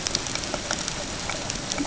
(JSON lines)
{"label": "ambient", "recorder": "HydroMoth"}